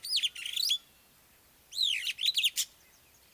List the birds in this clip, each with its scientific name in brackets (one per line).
Superb Starling (Lamprotornis superbus)